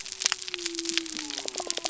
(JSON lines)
{"label": "biophony", "recorder": "SoundTrap 300"}